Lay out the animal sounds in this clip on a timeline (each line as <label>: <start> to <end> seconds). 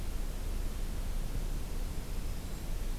Black-throated Green Warbler (Setophaga virens): 1.7 to 3.0 seconds